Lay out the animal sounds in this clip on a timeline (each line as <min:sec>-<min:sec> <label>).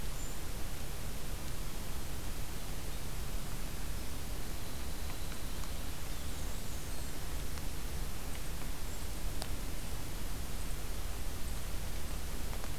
0:00.0-0:00.5 Golden-crowned Kinglet (Regulus satrapa)
0:03.9-0:07.2 Winter Wren (Troglodytes hiemalis)
0:06.3-0:07.3 Black-and-white Warbler (Mniotilta varia)